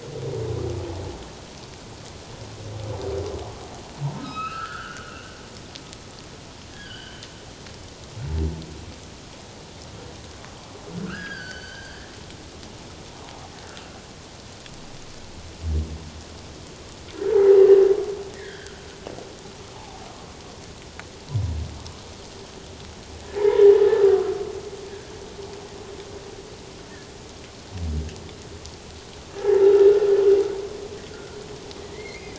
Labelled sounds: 4.1	5.4	humpback whale, 1.2 to 5.2 kHz
6.7	7.2	humpback whale, 1.4 to 4.8 kHz
11.1	11.9	humpback whale, 1.2 to 6.2 kHz
17.3	17.6	humpback whale, 0.78 to 0.97 kHz
18.4	18.8	humpback whale, 1.3 to 3.4 kHz
19.7	20.0	humpback whale, 0.78 to 1.0 kHz
23.4	23.7	humpback whale, 0.81 to 1.0 kHz
29.3	29.9	humpback whale, 0.78 to 1.9 kHz
31.8	32.3	humpback whale, 1.8 to 2.6 kHz

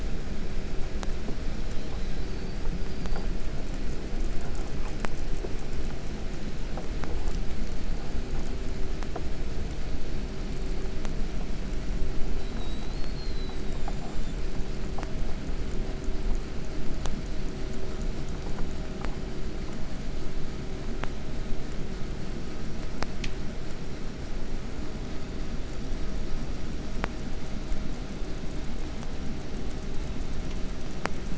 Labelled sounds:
1.6	3.4	killer whale, 3.0 to 5.3 kHz
12.2	14.7	killer whale, 3.0 to 8.0 kHz

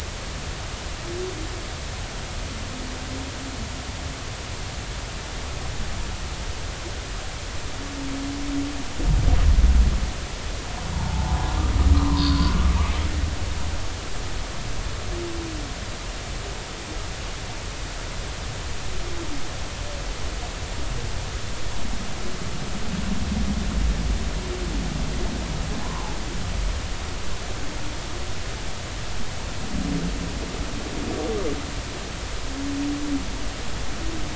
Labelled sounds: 10.9	12.5	humpback whale, 0.80 to 4.8 kHz
25.8	26.2	humpback whale, 0.80 to 1.1 kHz

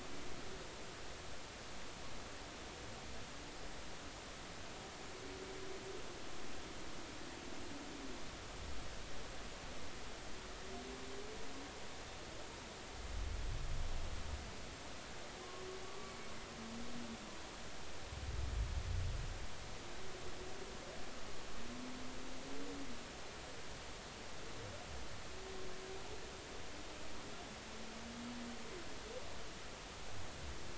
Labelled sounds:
15.8	16.1	humpback whale, 1.1 to 1.2 kHz

